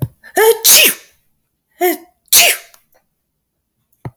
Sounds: Sneeze